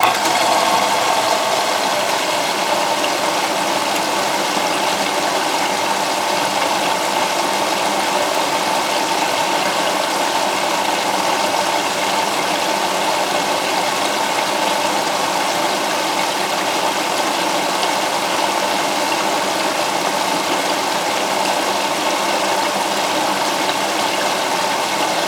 are there a waterfall?
yes